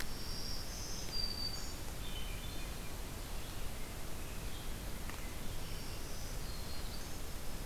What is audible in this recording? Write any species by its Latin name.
Setophaga virens, Catharus guttatus, Turdus migratorius